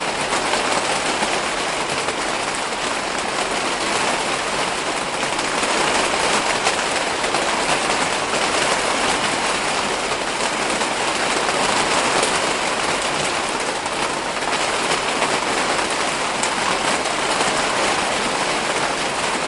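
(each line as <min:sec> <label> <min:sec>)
0:00.0 The monotonous sound of heavy rain splashing on a roof. 0:19.5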